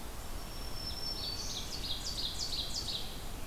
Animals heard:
Black-throated Green Warbler (Setophaga virens), Ovenbird (Seiurus aurocapilla)

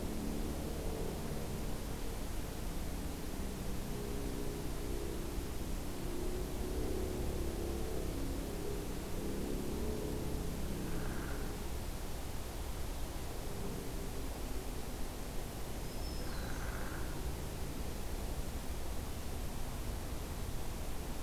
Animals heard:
Black-throated Green Warbler (Setophaga virens), Downy Woodpecker (Dryobates pubescens)

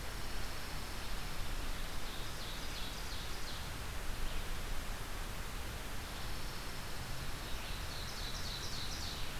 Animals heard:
Pine Warbler (Setophaga pinus), Ovenbird (Seiurus aurocapilla)

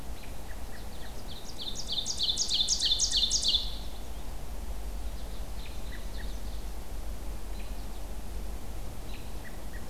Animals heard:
American Goldfinch (Spinus tristis), American Robin (Turdus migratorius), Ovenbird (Seiurus aurocapilla)

